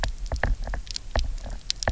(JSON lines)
{"label": "biophony, knock", "recorder": "SoundTrap 300"}